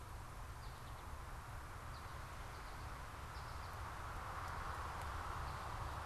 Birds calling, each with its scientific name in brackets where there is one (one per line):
American Goldfinch (Spinus tristis)